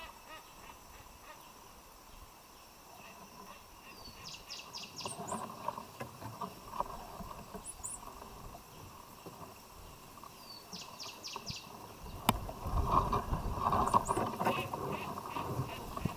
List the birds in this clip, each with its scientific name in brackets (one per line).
Cinnamon Bracken-Warbler (Bradypterus cinnamomeus)